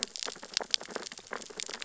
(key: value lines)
label: biophony, sea urchins (Echinidae)
recorder: SoundTrap 600 or HydroMoth